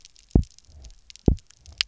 {"label": "biophony, double pulse", "recorder": "SoundTrap 300"}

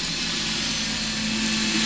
{"label": "anthrophony, boat engine", "recorder": "SoundTrap 500"}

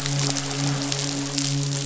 {"label": "biophony, midshipman", "recorder": "SoundTrap 500"}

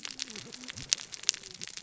{"label": "biophony, cascading saw", "recorder": "SoundTrap 600 or HydroMoth"}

